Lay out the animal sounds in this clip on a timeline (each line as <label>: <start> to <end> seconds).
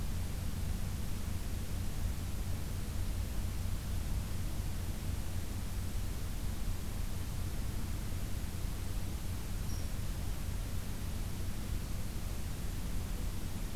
Red Squirrel (Tamiasciurus hudsonicus): 9.6 to 9.9 seconds